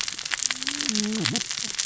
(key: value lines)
label: biophony, cascading saw
recorder: SoundTrap 600 or HydroMoth